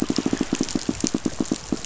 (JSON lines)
{"label": "biophony, pulse", "recorder": "SoundTrap 500"}